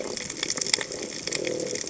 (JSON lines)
{"label": "biophony", "recorder": "HydroMoth"}